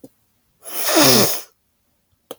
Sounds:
Sniff